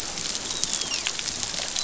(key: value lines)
label: biophony, dolphin
recorder: SoundTrap 500